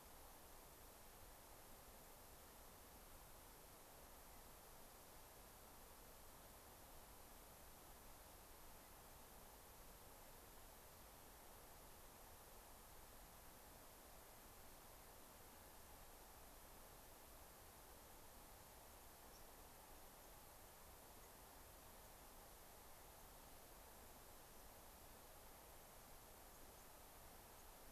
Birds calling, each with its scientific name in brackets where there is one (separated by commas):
White-crowned Sparrow (Zonotrichia leucophrys)